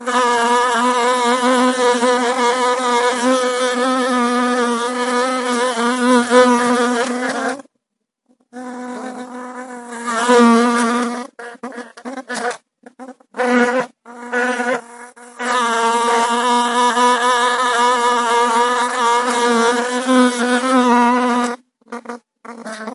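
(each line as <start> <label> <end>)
0.0 A fly buzzes erratically with fluttering, uneven movement. 22.9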